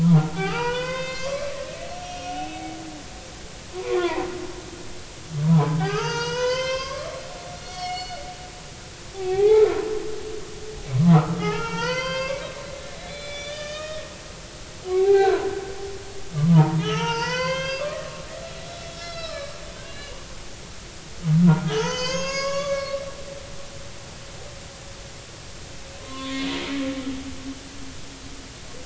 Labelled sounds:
0.0	2.8	humpback whale, 0.86 to 6.9 kHz
3.9	4.3	humpback whale, 0.80 to 1.2 kHz
5.5	8.2	humpback whale, 0.80 to 7.4 kHz
9.1	9.8	humpback whale, 0.80 to 2.3 kHz
10.9	12.4	humpback whale, 0.80 to 5.8 kHz
13.0	14.5	humpback whale, 1.1 to 6.9 kHz
14.9	15.5	humpback whale, 0.80 to 1.6 kHz
16.5	18.3	humpback whale, 0.83 to 6.5 kHz
18.8	19.6	humpback whale, 1.1 to 5.4 kHz
19.8	20.3	humpback whale, 2.7 to 2.9 kHz
21.6	23.0	humpback whale, 0.80 to 7.1 kHz
26.0	26.9	humpback whale, 0.96 to 3.5 kHz

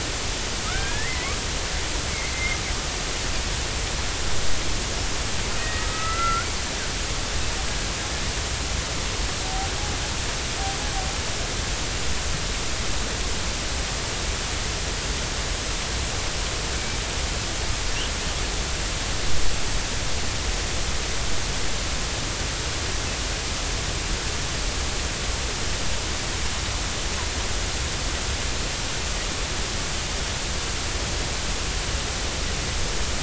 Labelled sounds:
0.6	1.4	killer whale, 1.2 to 2.6 kHz
2.1	2.6	killer whale, 1.9 to 2.3 kHz
5.6	6.5	killer whale, 1.2 to 2.1 kHz

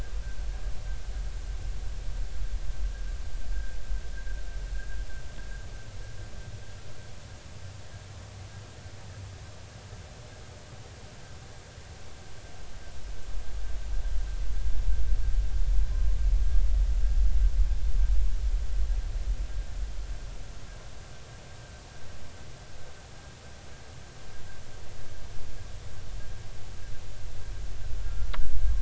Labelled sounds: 28.0	28.3	humpback whale, 1.3 to 1.5 kHz

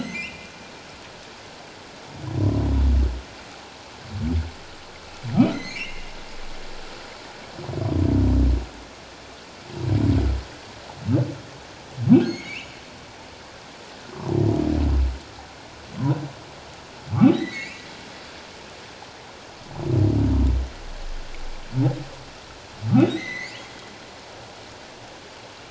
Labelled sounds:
0.0	0.5	humpback whale, 1.9 to 2.9 kHz
5.3	6.1	humpback whale, 1.1 to 6.5 kHz
12.2	12.8	humpback whale, 2.0 to 6.6 kHz
17.3	17.8	humpback whale, 1.8 to 4.2 kHz
23.0	23.6	humpback whale, 1.8 to 6.2 kHz

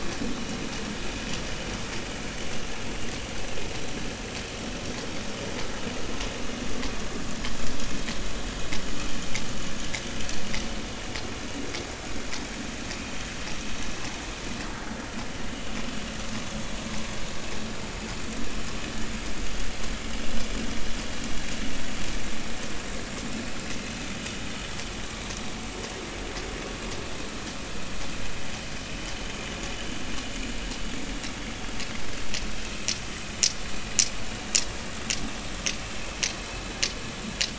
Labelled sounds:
15.4	15.7	vessel noise, 2.8 to 3.1 kHz

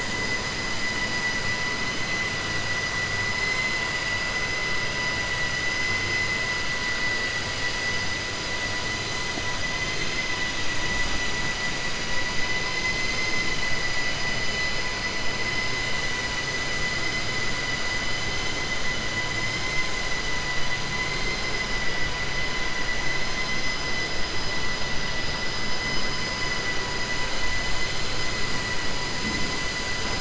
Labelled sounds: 12.7	13.5	vessel noise, 1.9 to 7.1 kHz

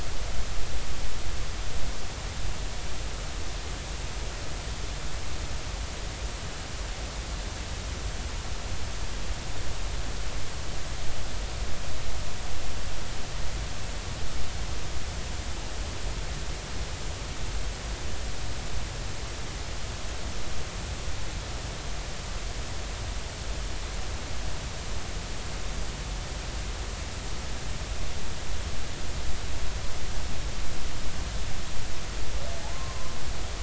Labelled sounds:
32.7	33.1	humpback whale, 0.99 to 1.1 kHz

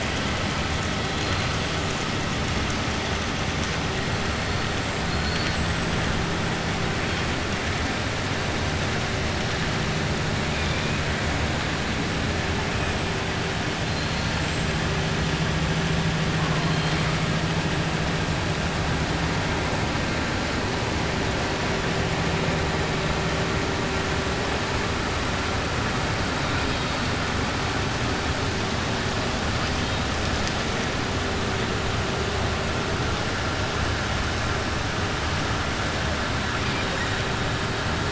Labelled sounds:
5.0	5.6	killer whale, 3.4 to 5.0 kHz
13.8	14.7	killer whale, 4.1 to 8.0 kHz

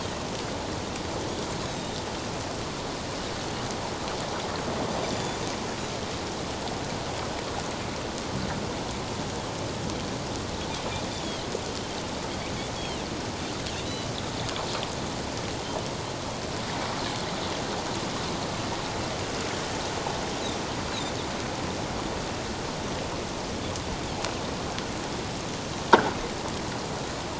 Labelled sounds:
1.7	2.0	croaking sound likely from a nearby submerged object, 7.2 to 7.7 kHz
5.0	5.4	croaking sound likely from a nearby submerged object, 3.4 to 7.1 kHz
11.1	11.5	croaking sound likely from a nearby submerged object, 3.0 to 3.6 kHz
12.8	14.1	croaking sound likely from a nearby submerged object, 2.6 to 3.4 kHz

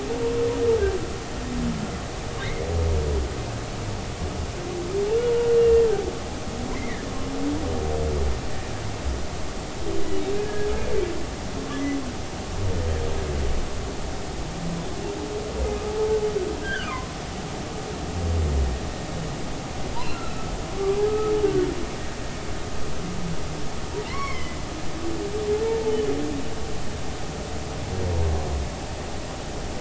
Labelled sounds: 2.4	2.7	humpback whale, 1.8 to 2.2 kHz
5.1	5.8	humpback whale, 2.7 to 2.9 kHz
6.7	7.1	humpback whale, 1.6 to 2.3 kHz
10.3	10.7	humpback whale, 1.5 to 1.7 kHz
16.6	17.1	humpback whale, 0.93 to 3.5 kHz
20.1	21.3	humpback whale, 1.2 to 1.5 kHz
22.4	22.7	humpback whale, 1.4 to 1.6 kHz
24.0	24.6	humpback whale, 0.83 to 5.6 kHz
25.9	26.1	humpback whale, 2.9 to 3.1 kHz

